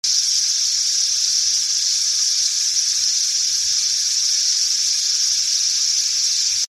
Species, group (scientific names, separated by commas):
Thopha saccata, Cicadidae